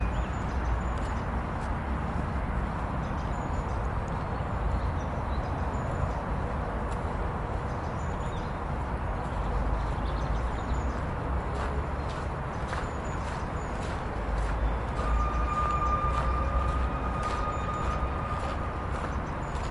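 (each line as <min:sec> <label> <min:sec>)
0:00.0 Soft footsteps on gravel or sand accompanied by distant traffic rumbling, creating a calm early morning ambiance. 0:19.7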